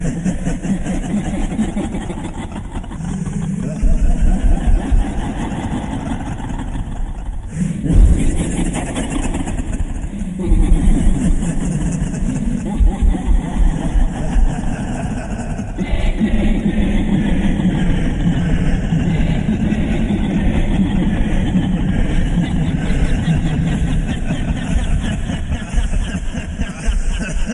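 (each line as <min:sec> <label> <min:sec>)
0:00.0 Repeated distorted laughter with an echo. 0:15.8
0:15.8 Extremely distorted overlapping laughter. 0:27.5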